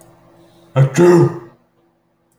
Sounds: Sneeze